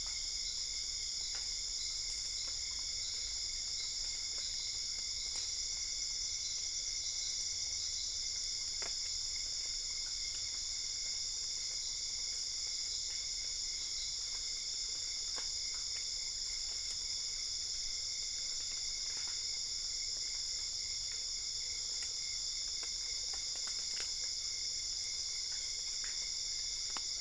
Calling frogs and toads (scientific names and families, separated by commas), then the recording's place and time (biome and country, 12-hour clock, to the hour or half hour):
Dendropsophus cruzi (Hylidae)
Cerrado, Brazil, 1am